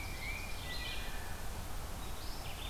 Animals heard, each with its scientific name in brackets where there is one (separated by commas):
Tufted Titmouse (Baeolophus bicolor), Red-eyed Vireo (Vireo olivaceus), Wood Thrush (Hylocichla mustelina)